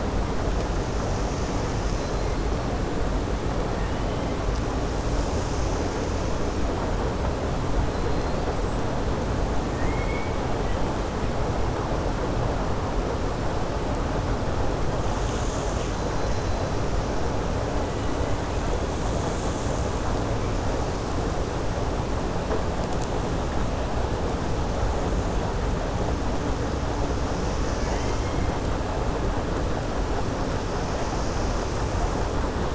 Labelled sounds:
9.7	10.4	killer whale, 1.8 to 3.3 kHz

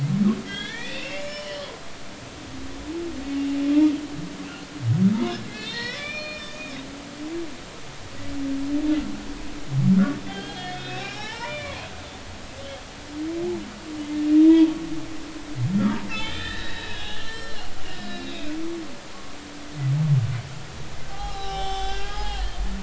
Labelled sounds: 0.5	1.7	humpback whale, 1.5 to 5.4 kHz
5.5	6.8	humpback whale, 1.2 to 6.2 kHz
10.3	11.9	humpback whale, 0.80 to 5.7 kHz
14.4	14.6	humpback whale, 3.5 to 3.7 kHz
15.8	17.6	humpback whale, 1.1 to 4.1 kHz
17.9	18.5	humpback whale, 2.3 to 5.1 kHz
19.1	19.4	humpback whale, 0.99 to 1.2 kHz
21.1	22.5	humpback whale, 0.80 to 5.6 kHz

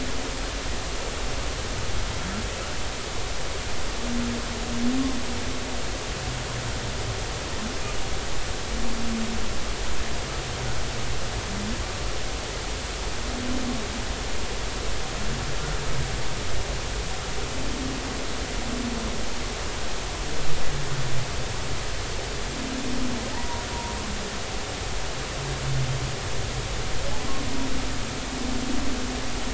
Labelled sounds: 23.3	23.6	humpback whale, 0.83 to 1.0 kHz

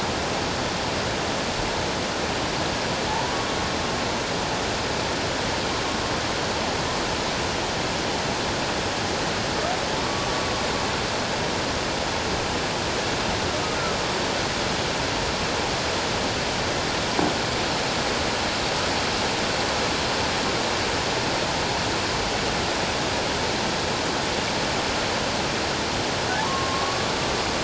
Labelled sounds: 3.1	3.3	humpback whale, 0.81 to 1.0 kHz
10.0	10.4	humpback whale, 1.1 to 1.2 kHz
26.3	27.1	humpback whale, 0.78 to 1.2 kHz

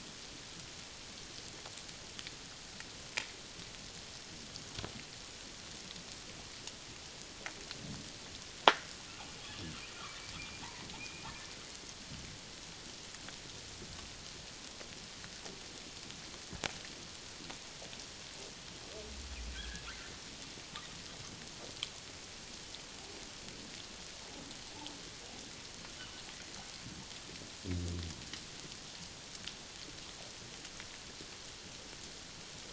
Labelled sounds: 10.3	11.3	humpback whale, 2.2 to 2.5 kHz
19.5	19.9	humpback whale, 1.5 to 1.8 kHz

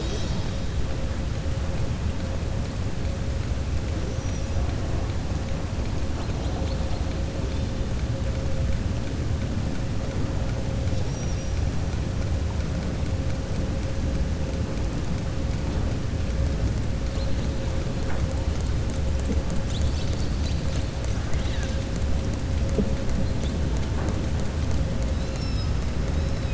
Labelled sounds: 4.0	4.6	killer whale, southern resident, 5.1 to 6.8 kHz
10.8	11.6	killer whale, southern resident, 4.5 to 6.1 kHz
21.2	21.8	killer whale, southern resident, 1.2 to 4.5 kHz

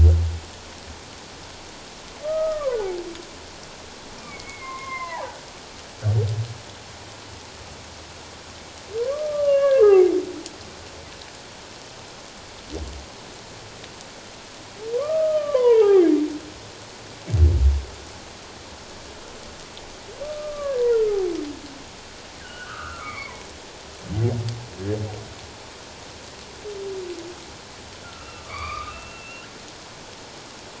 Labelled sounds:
2.2	2.9	humpback whale, 0.94 to 1.6 kHz
4.2	5.4	humpback whale, 0.78 to 2.5 kHz
9.0	10.1	humpback whale, 0.78 to 2.9 kHz
14.9	16.1	humpback whale, 0.78 to 3.2 kHz
20.2	21.2	humpback whale, 1.1 to 1.5 kHz
22.4	23.4	humpback whale, 0.81 to 2.4 kHz
28.2	29.5	humpback whale, 1.0 to 4.7 kHz

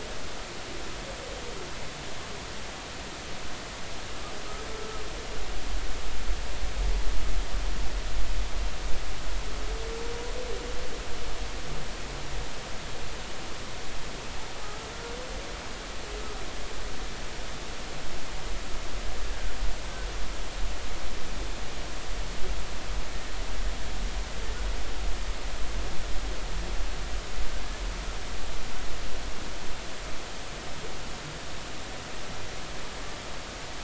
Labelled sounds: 14.6	14.9	humpback whale, 1.2 to 1.4 kHz

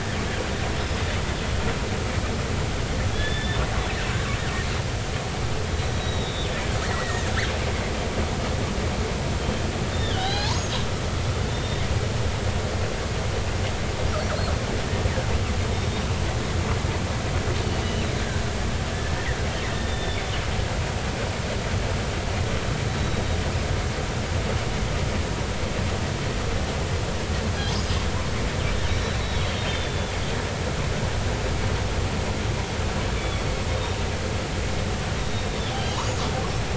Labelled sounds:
3.1	3.6	killer whale, northern resident, 1.6 to 3.6 kHz
5.9	7.3	killer whale, northern resident, 1.7 to 3.9 kHz
10.0	11.8	killer whale, northern resident, 0.80 to 6.7 kHz
15.7	16.0	killer whale, northern resident, 3.6 to 3.7 kHz
17.8	18.1	killer whale, northern resident, 2.7 to 3.0 kHz
19.7	20.3	killer whale, northern resident, 3.4 to 3.6 kHz
28.9	30.1	killer whale, northern resident, 3.0 to 6.0 kHz
33.2	33.5	killer whale, northern resident, 3.3 to 3.5 kHz
33.7	34.0	killer whale, northern resident, 3.6 to 3.8 kHz
35.2	36.1	killer whale, northern resident, 2.9 to 3.8 kHz

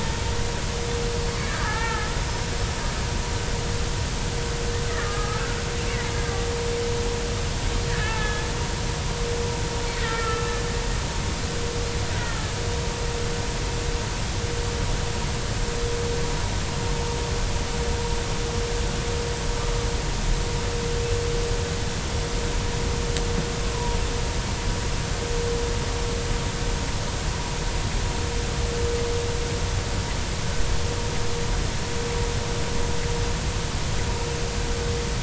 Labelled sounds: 0.9	2.7	killer whale, Bigg's (transient), 0.80 to 5.3 kHz
4.9	5.4	killer whale, Bigg's (transient), 1.1 to 1.4 kHz
7.9	8.5	killer whale, Bigg's (transient), 1.2 to 3.5 kHz
10.0	10.5	killer whale, Bigg's (transient), 1.2 to 2.0 kHz
23.7	24.0	killer whale, Bigg's (transient), 0.90 to 1.1 kHz

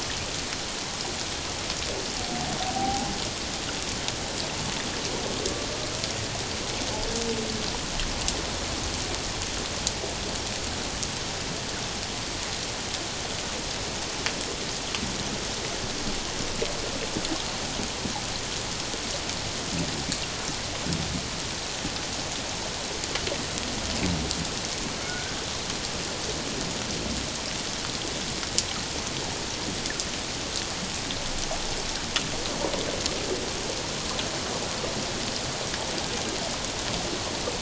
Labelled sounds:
2.6	3.1	humpback whale, 0.78 to 0.91 kHz
25.1	25.4	killer whale, Bigg's (transient), 1.4 to 1.6 kHz

